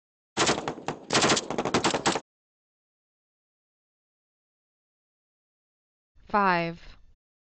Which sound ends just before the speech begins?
gunfire